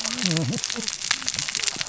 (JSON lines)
{"label": "biophony, cascading saw", "recorder": "SoundTrap 600 or HydroMoth"}